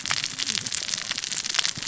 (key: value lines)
label: biophony, cascading saw
recorder: SoundTrap 600 or HydroMoth